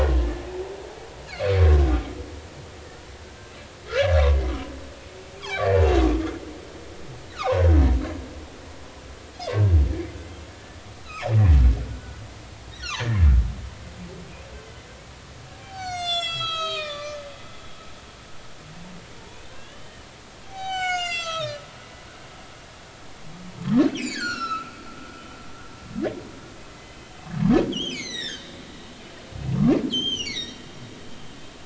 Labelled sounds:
1.2	1.5	humpback whale, 4.0 to 4.6 kHz
3.8	4.4	humpback whale, 0.96 to 1.8 kHz
5.4	5.7	humpback whale, 2.1 to 2.5 kHz
7.3	7.6	humpback whale, 0.93 to 1.6 kHz
9.5	9.8	humpback whale, 1.5 to 1.7 kHz
11.0	11.3	humpback whale, 2.1 to 5.2 kHz
11.9	12.2	humpback whale, 1.3 to 1.6 kHz
15.5	17.2	humpback whale, 0.80 to 8.0 kHz
19.5	20.1	humpback whale, 1.5 to 3.1 kHz
20.4	21.6	humpback whale, 0.80 to 7.8 kHz
23.9	24.7	humpback whale, 1.2 to 7.6 kHz
26.7	27.1	humpback whale, 2.0 to 3.1 kHz
27.7	28.6	humpback whale, 1.5 to 8.0 kHz
29.9	30.6	humpback whale, 1.8 to 6.4 kHz

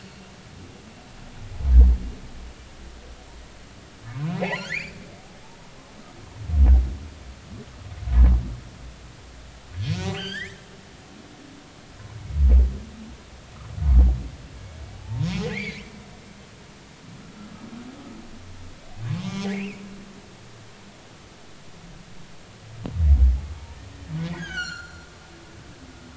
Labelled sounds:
4.4	4.9	humpback whale, 0.80 to 7.1 kHz
9.8	10.6	humpback whale, 1.4 to 6.3 kHz
14.9	15.9	humpback whale, 0.80 to 2.8 kHz
19.2	19.8	humpback whale, 1.9 to 3.4 kHz
24.4	25.1	humpback whale, 1.3 to 7.4 kHz

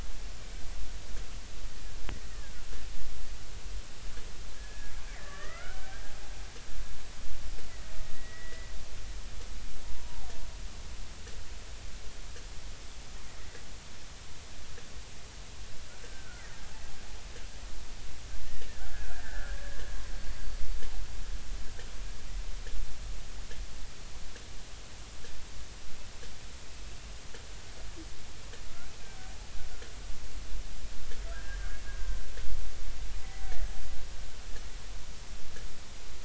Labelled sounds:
2.3	2.7	killer whale, Bigg's (transient), 1.4 to 1.9 kHz
4.5	5.9	killer whale, Bigg's (transient), 1.1 to 2.3 kHz
8.1	8.7	killer whale, Bigg's (transient), 1.9 to 2.0 kHz
10.0	10.3	killer whale, Bigg's (transient), 0.80 to 1.1 kHz
16.0	16.5	killer whale, Bigg's (transient), 1.3 to 1.7 kHz
18.8	20.4	killer whale, Bigg's (transient), 1.3 to 4.6 kHz
31.3	31.8	killer whale, Bigg's (transient), 1.4 to 1.8 kHz

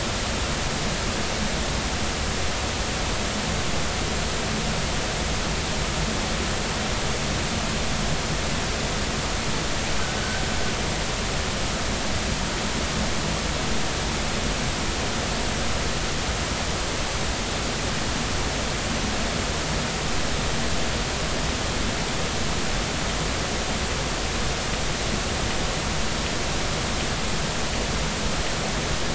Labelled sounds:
10.2	10.4	killer whale, 1.4 to 1.6 kHz

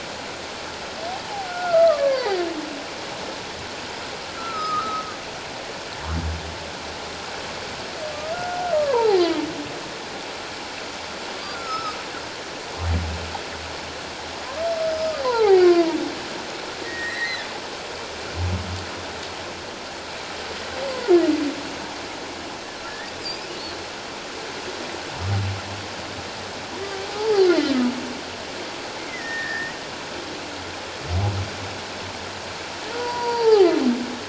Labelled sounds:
1.5	2.5	humpback whale, 0.78 to 2.2 kHz
4.4	5.1	humpback whale, 1.2 to 4.1 kHz
8.3	9.2	humpback whale, 0.78 to 1.5 kHz
11.5	12.0	humpback whale, 1.2 to 5.4 kHz
14.8	16.0	humpback whale, 0.78 to 5.2 kHz
16.8	17.5	humpback whale, 1.7 to 4.4 kHz
22.9	23.5	humpback whale, 1.7 to 5.2 kHz
27.1	27.5	humpback whale, 0.78 to 0.94 kHz
29.0	29.8	humpback whale, 1.6 to 2.2 kHz
32.9	33.7	humpback whale, 0.78 to 4.8 kHz

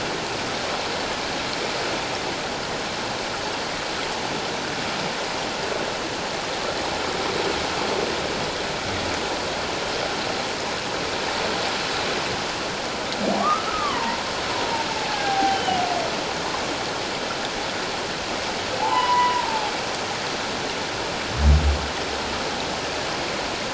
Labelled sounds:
13.4	14.2	humpback whale, 0.88 to 1.4 kHz
14.5	15.8	humpback whale, 0.78 to 3.1 kHz
18.8	19.7	humpback whale, 0.78 to 3.0 kHz

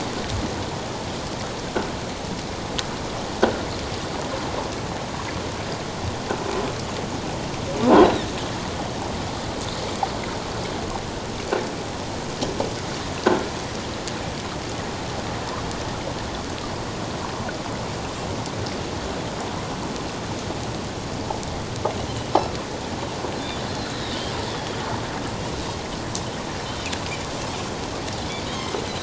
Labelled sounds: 24.5	24.8	Pacific white-sided dolphin, 3.3 to 3.7 kHz
28.5	28.8	Pacific white-sided dolphin, 3.1 to 6.5 kHz

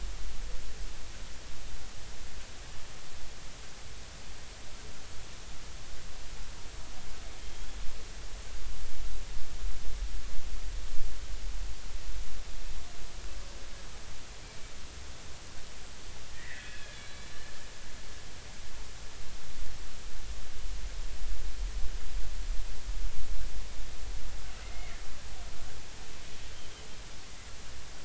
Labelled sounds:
7.4	7.7	killer whale, Bigg's (transient), 3.1 to 3.3 kHz
16.3	17.5	killer whale, Bigg's (transient), 1.6 to 4.2 kHz
24.6	24.9	killer whale, Bigg's (transient), 2.0 to 2.2 kHz
26.5	26.8	killer whale, Bigg's (transient), 3.0 to 3.3 kHz

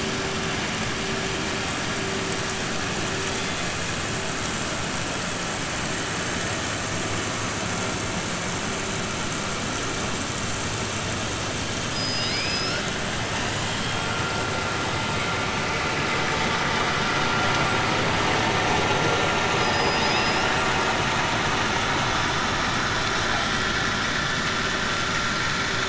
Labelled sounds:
11.8	12.8	killer whale, 1.4 to 5.5 kHz

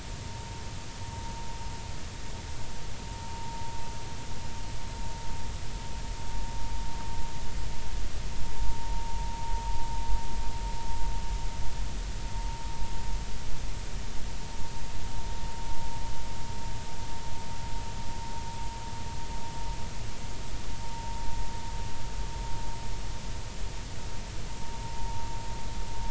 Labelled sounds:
3.2	3.6	vessel noise, 0.83 to 0.99 kHz

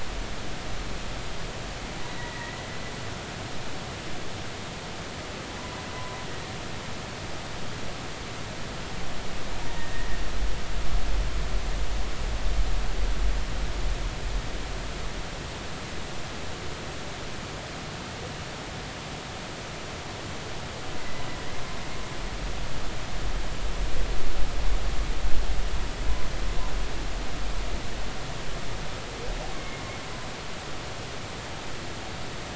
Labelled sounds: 2.1	2.6	humpback whale, 1.8 to 2.0 kHz
5.9	6.2	humpback whale, 0.96 to 1.1 kHz
9.7	10.1	humpback whale, 1.8 to 2.0 kHz
21.0	21.2	humpback whale, 1.9 to 2.1 kHz
29.6	29.8	humpback whale, 2.1 to 2.2 kHz

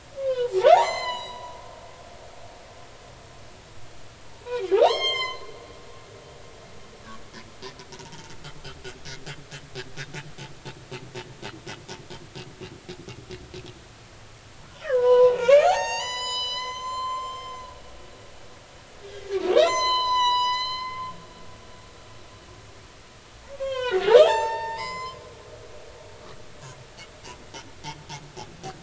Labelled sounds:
0.2	1.6	humpback whale, 0.80 to 8.0 kHz
4.8	5.4	humpback whale, 0.80 to 7.6 kHz
8.1	8.3	humpback whale, 0.83 to 0.99 kHz
14.6	17.6	humpback whale, 0.80 to 8.0 kHz
19.6	21.1	humpback whale, 0.86 to 8.0 kHz
23.5	25.2	humpback whale, 0.80 to 8.0 kHz

